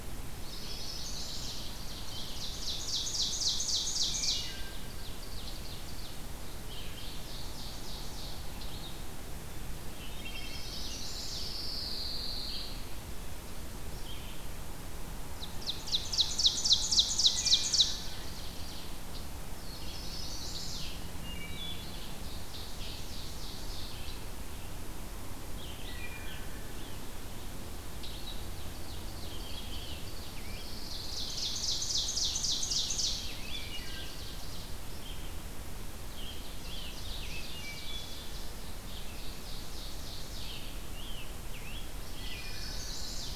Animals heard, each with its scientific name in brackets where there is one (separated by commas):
Chestnut-sided Warbler (Setophaga pensylvanica), Red-eyed Vireo (Vireo olivaceus), Scarlet Tanager (Piranga olivacea), Ovenbird (Seiurus aurocapilla), Wood Thrush (Hylocichla mustelina), Pine Warbler (Setophaga pinus)